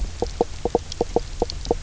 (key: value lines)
label: biophony, knock croak
recorder: SoundTrap 300